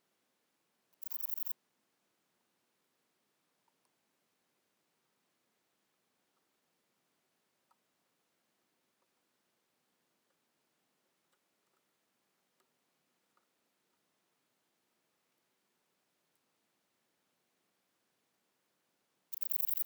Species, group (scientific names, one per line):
Antaxius chopardi
Orthoptera